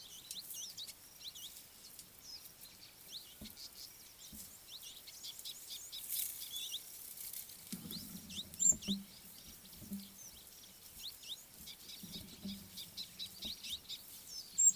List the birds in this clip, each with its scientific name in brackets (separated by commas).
Red-billed Firefinch (Lagonosticta senegala), Scarlet-chested Sunbird (Chalcomitra senegalensis)